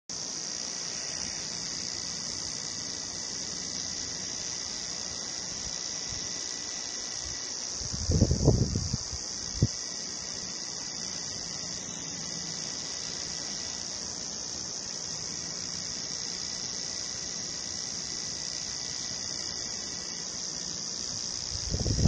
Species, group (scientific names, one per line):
Arunta perulata
Cicadidae